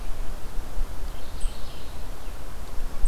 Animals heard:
Mourning Warbler (Geothlypis philadelphia)

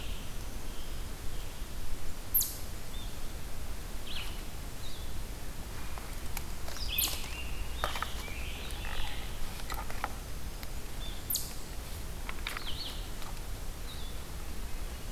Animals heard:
Black-throated Green Warbler (Setophaga virens), Eastern Chipmunk (Tamias striatus), Scarlet Tanager (Piranga olivacea), Red-eyed Vireo (Vireo olivaceus)

